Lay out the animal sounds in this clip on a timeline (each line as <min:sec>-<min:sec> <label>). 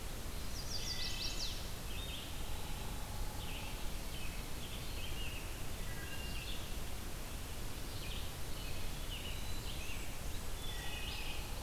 0:00.2-0:01.7 Chestnut-sided Warbler (Setophaga pensylvanica)
0:00.7-0:01.6 Wood Thrush (Hylocichla mustelina)
0:01.7-0:11.6 Red-eyed Vireo (Vireo olivaceus)
0:03.2-0:05.6 American Robin (Turdus migratorius)
0:05.8-0:06.6 Wood Thrush (Hylocichla mustelina)
0:08.4-0:09.8 Eastern Wood-Pewee (Contopus virens)
0:08.9-0:10.6 Blackburnian Warbler (Setophaga fusca)
0:09.0-0:11.6 American Robin (Turdus migratorius)
0:10.3-0:11.5 Wood Thrush (Hylocichla mustelina)